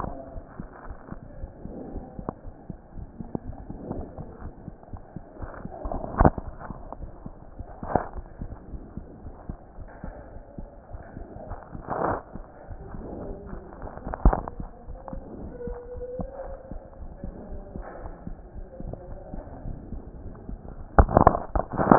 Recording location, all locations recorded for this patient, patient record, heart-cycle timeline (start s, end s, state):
aortic valve (AV)
aortic valve (AV)+pulmonary valve (PV)+tricuspid valve (TV)+mitral valve (MV)
#Age: Child
#Sex: Male
#Height: 115.0 cm
#Weight: 18.9 kg
#Pregnancy status: False
#Murmur: Absent
#Murmur locations: nan
#Most audible location: nan
#Systolic murmur timing: nan
#Systolic murmur shape: nan
#Systolic murmur grading: nan
#Systolic murmur pitch: nan
#Systolic murmur quality: nan
#Diastolic murmur timing: nan
#Diastolic murmur shape: nan
#Diastolic murmur grading: nan
#Diastolic murmur pitch: nan
#Diastolic murmur quality: nan
#Outcome: Abnormal
#Campaign: 2015 screening campaign
0.00	1.38	unannotated
1.38	1.52	S1
1.52	1.64	systole
1.64	1.74	S2
1.74	1.93	diastole
1.93	2.05	S1
2.05	2.17	systole
2.17	2.28	S2
2.28	2.43	diastole
2.43	2.52	S1
2.52	2.66	systole
2.66	2.77	S2
2.77	2.96	diastole
2.96	3.06	S1
3.06	3.18	systole
3.18	3.28	S2
3.28	3.46	diastole
3.46	3.53	S1
3.53	3.69	systole
3.69	3.76	S2
3.76	3.96	diastole
3.96	4.03	S1
4.03	4.16	systole
4.16	4.24	S2
4.24	4.42	diastole
4.42	4.52	S1
4.52	4.64	systole
4.64	4.72	S2
4.72	4.91	diastole
4.91	5.00	S1
5.00	5.14	systole
5.14	5.20	S2
5.20	5.40	diastole
5.40	5.46	S1
5.46	5.63	systole
5.63	5.68	S2
5.68	5.84	diastole
5.84	6.99	unannotated
6.99	7.08	S1
7.08	7.22	systole
7.22	7.31	S2
7.31	7.56	diastole
7.56	7.66	S1
7.66	7.82	systole
7.82	7.87	S2
7.87	21.98	unannotated